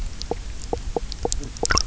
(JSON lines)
{"label": "biophony, knock croak", "recorder": "SoundTrap 300"}